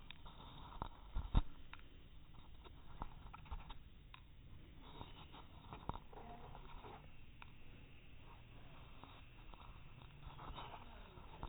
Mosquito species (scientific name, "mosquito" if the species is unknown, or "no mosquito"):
no mosquito